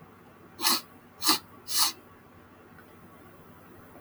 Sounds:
Sniff